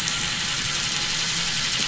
{"label": "anthrophony, boat engine", "recorder": "SoundTrap 500"}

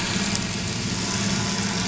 {"label": "anthrophony, boat engine", "recorder": "SoundTrap 500"}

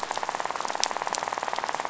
{"label": "biophony, rattle", "recorder": "SoundTrap 500"}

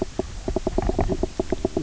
{"label": "biophony, knock croak", "recorder": "SoundTrap 300"}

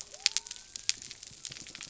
{"label": "biophony", "recorder": "SoundTrap 300"}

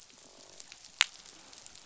{"label": "biophony, croak", "recorder": "SoundTrap 500"}
{"label": "biophony", "recorder": "SoundTrap 500"}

